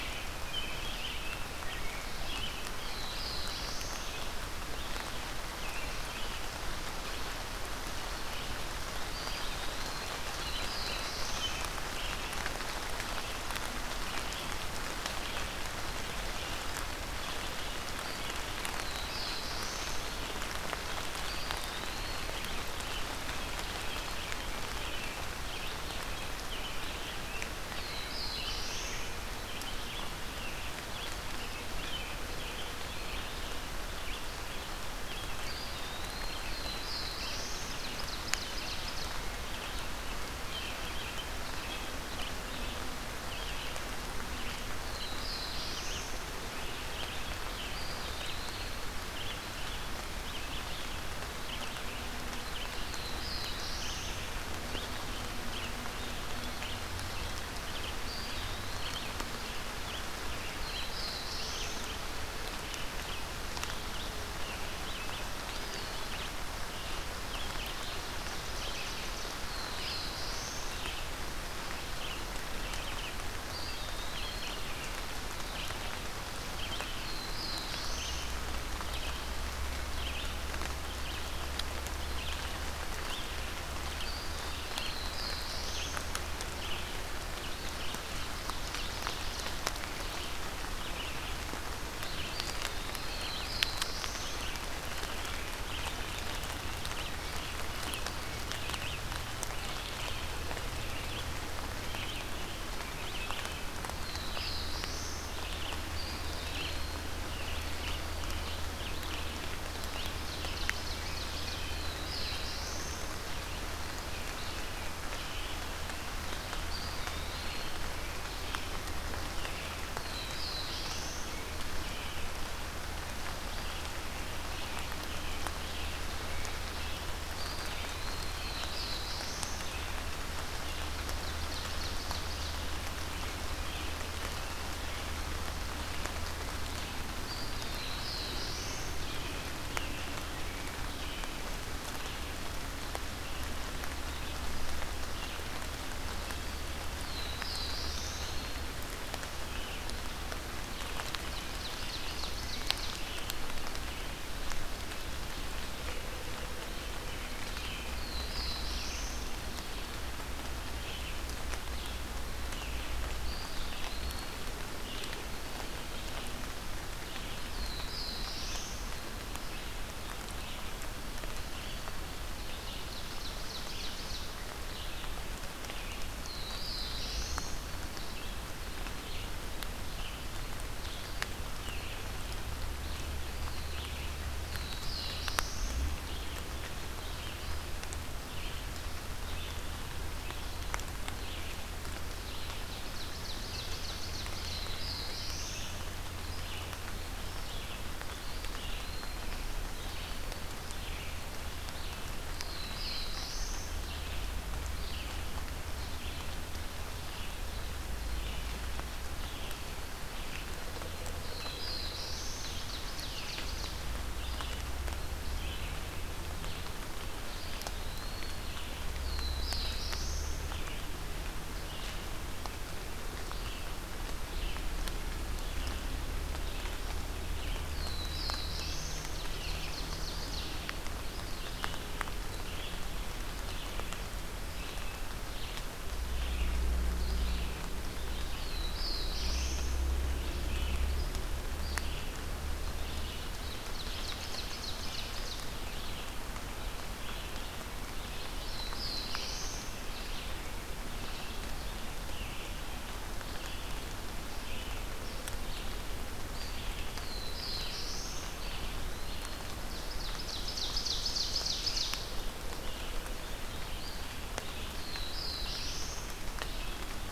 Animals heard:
Eastern Wood-Pewee (Contopus virens), Red-eyed Vireo (Vireo olivaceus), American Robin (Turdus migratorius), Ovenbird (Seiurus aurocapilla), Black-throated Blue Warbler (Setophaga caerulescens)

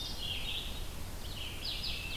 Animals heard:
Red-eyed Vireo (Vireo olivaceus)

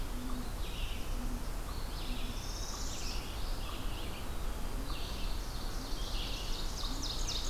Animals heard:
Eastern Wood-Pewee (Contopus virens), Northern Parula (Setophaga americana), Ovenbird (Seiurus aurocapilla), unknown mammal, Red-eyed Vireo (Vireo olivaceus)

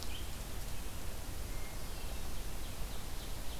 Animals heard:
Hermit Thrush (Catharus guttatus), Red-eyed Vireo (Vireo olivaceus), Ovenbird (Seiurus aurocapilla)

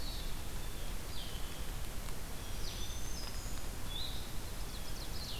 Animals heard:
Blue-headed Vireo (Vireo solitarius), Blue Jay (Cyanocitta cristata), Ovenbird (Seiurus aurocapilla), Black-throated Green Warbler (Setophaga virens)

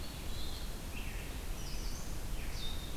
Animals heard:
Red-eyed Vireo (Vireo olivaceus)

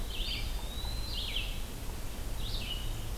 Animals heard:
Red-eyed Vireo (Vireo olivaceus), Eastern Wood-Pewee (Contopus virens)

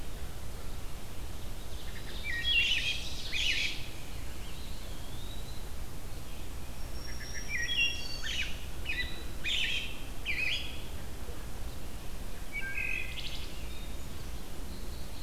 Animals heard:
Black-throated Green Warbler (Setophaga virens), American Robin (Turdus migratorius), Eastern Wood-Pewee (Contopus virens), Wood Thrush (Hylocichla mustelina)

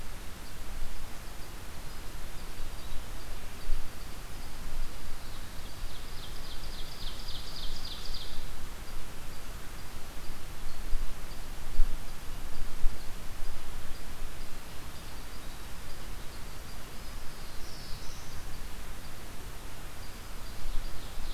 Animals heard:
Ovenbird (Seiurus aurocapilla), unknown mammal, Black-throated Blue Warbler (Setophaga caerulescens)

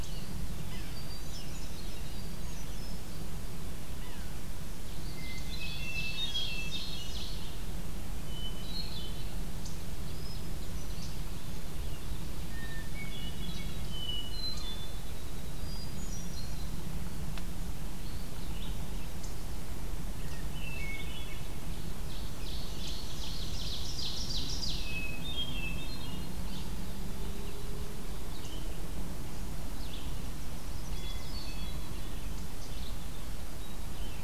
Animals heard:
Hermit Thrush (Catharus guttatus), Red-eyed Vireo (Vireo olivaceus), Chestnut-sided Warbler (Setophaga pensylvanica), Ovenbird (Seiurus aurocapilla), Winter Wren (Troglodytes hiemalis), Yellow-bellied Sapsucker (Sphyrapicus varius), Eastern Wood-Pewee (Contopus virens)

